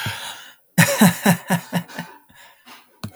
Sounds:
Laughter